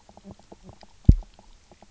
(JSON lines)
{"label": "biophony, knock croak", "recorder": "SoundTrap 300"}